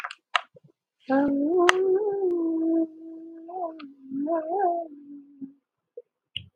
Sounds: Sigh